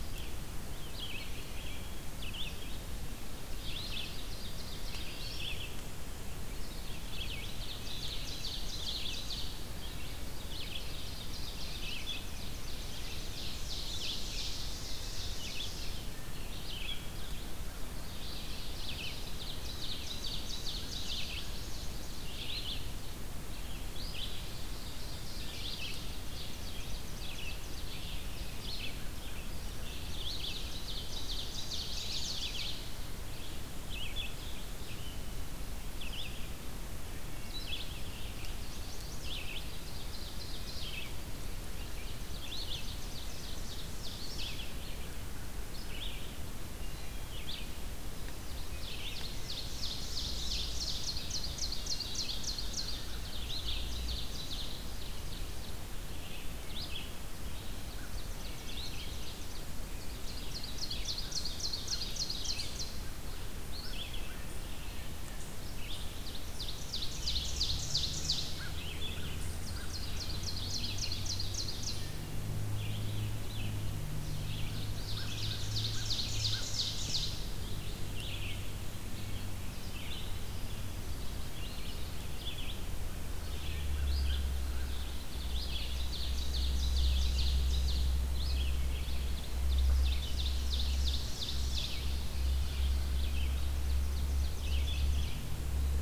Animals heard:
Hermit Thrush (Catharus guttatus), Chestnut-sided Warbler (Setophaga pensylvanica), American Crow (Corvus brachyrhynchos), Red-eyed Vireo (Vireo olivaceus), Ovenbird (Seiurus aurocapilla)

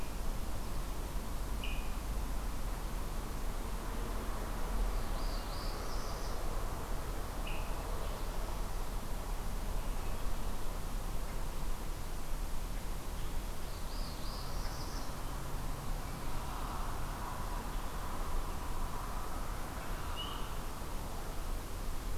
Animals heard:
Swainson's Thrush (Catharus ustulatus), Northern Parula (Setophaga americana)

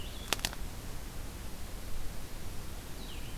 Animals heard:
Blue-headed Vireo (Vireo solitarius)

